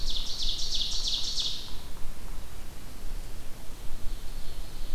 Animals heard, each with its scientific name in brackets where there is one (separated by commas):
Ovenbird (Seiurus aurocapilla)